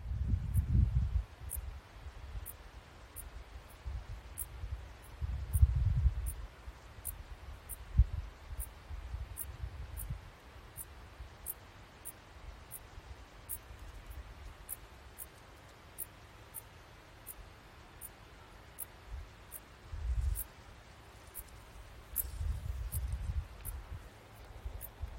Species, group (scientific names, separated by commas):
Pholidoptera griseoaptera, Orthoptera